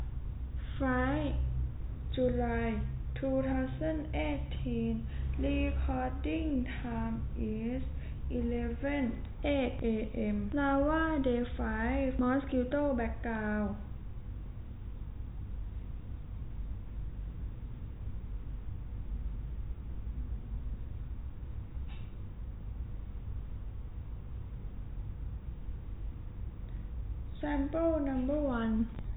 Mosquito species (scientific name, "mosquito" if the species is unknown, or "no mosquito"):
no mosquito